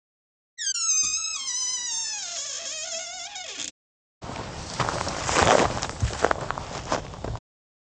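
At 0.57 seconds, the sound of a door is heard. After that, at 4.21 seconds, someone walks.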